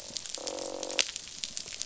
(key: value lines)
label: biophony, croak
recorder: SoundTrap 500